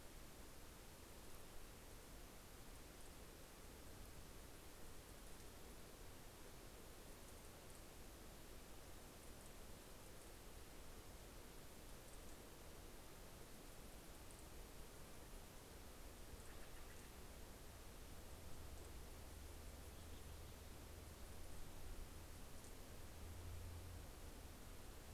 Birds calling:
Steller's Jay (Cyanocitta stelleri)

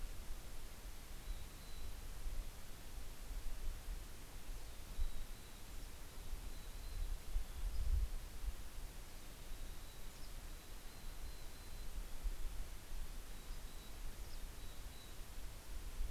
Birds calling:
Mountain Chickadee (Poecile gambeli), Dusky Flycatcher (Empidonax oberholseri)

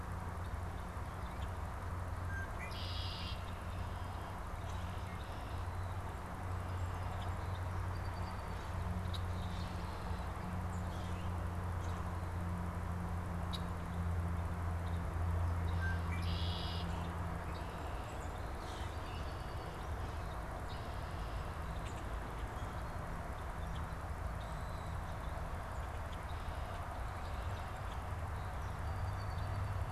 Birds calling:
Red-winged Blackbird (Agelaius phoeniceus), Song Sparrow (Melospiza melodia), Common Grackle (Quiscalus quiscula), Northern Cardinal (Cardinalis cardinalis)

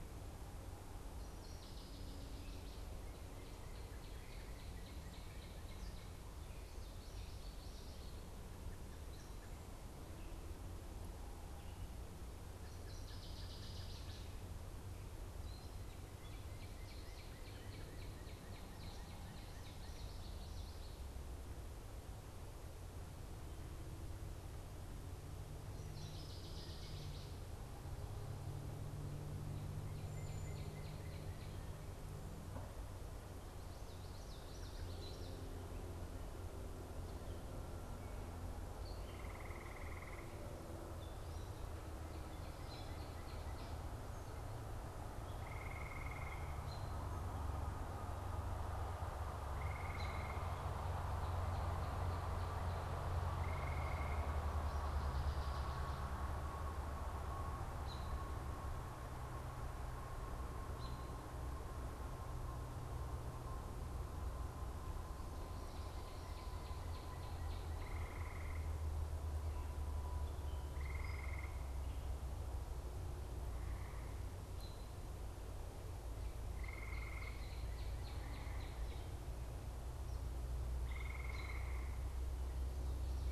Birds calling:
Gray Catbird (Dumetella carolinensis), American Robin (Turdus migratorius), Northern Cardinal (Cardinalis cardinalis), Common Yellowthroat (Geothlypis trichas), Cedar Waxwing (Bombycilla cedrorum), Northern Waterthrush (Parkesia noveboracensis)

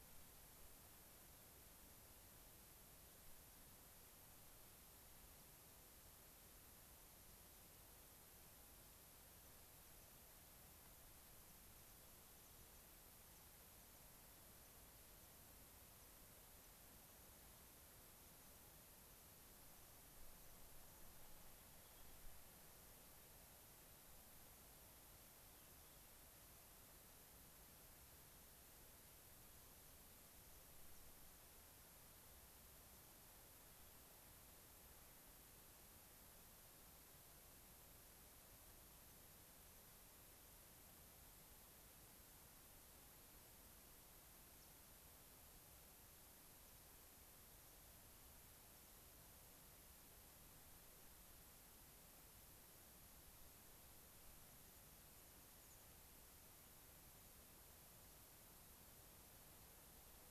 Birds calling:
Rock Wren (Salpinctes obsoletus), American Pipit (Anthus rubescens), unidentified bird

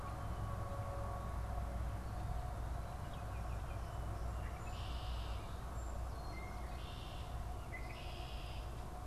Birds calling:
Red-winged Blackbird (Agelaius phoeniceus)

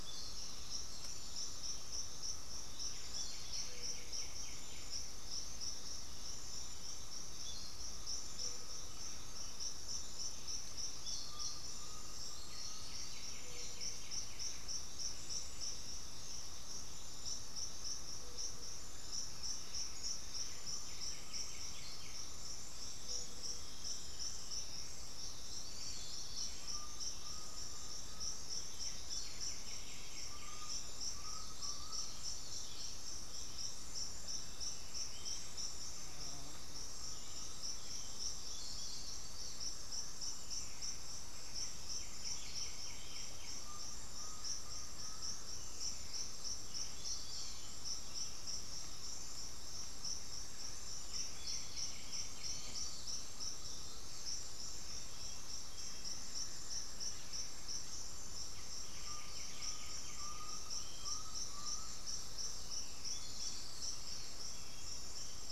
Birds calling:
Undulated Tinamou (Crypturellus undulatus), Black-throated Antbird (Myrmophylax atrothorax), Chestnut-winged Foliage-gleaner (Dendroma erythroptera), Bluish-fronted Jacamar (Galbula cyanescens), unidentified bird, White-winged Becard (Pachyramphus polychopterus)

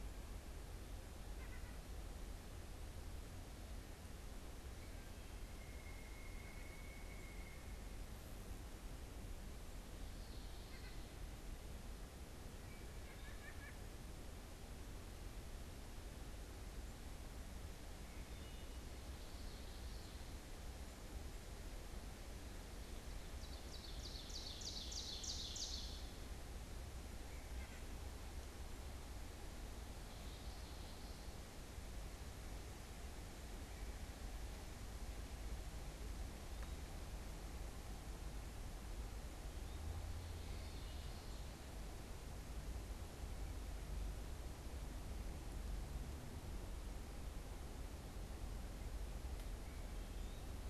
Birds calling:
Eastern Wood-Pewee (Contopus virens), Wood Thrush (Hylocichla mustelina), Pileated Woodpecker (Dryocopus pileatus), Common Yellowthroat (Geothlypis trichas), Ovenbird (Seiurus aurocapilla), White-breasted Nuthatch (Sitta carolinensis)

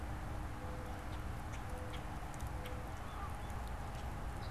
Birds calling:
Common Grackle (Quiscalus quiscula), Mourning Dove (Zenaida macroura)

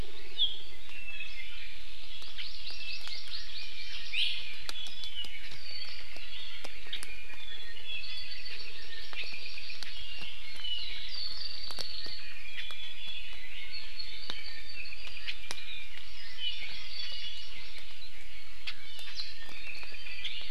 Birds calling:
Hawaii Amakihi (Chlorodrepanis virens), Iiwi (Drepanis coccinea), Apapane (Himatione sanguinea)

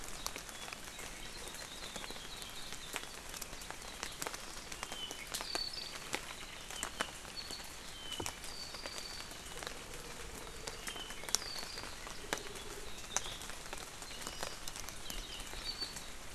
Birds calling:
Hawaii Akepa (Loxops coccineus), Apapane (Himatione sanguinea)

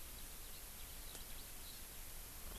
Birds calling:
Eurasian Skylark (Alauda arvensis)

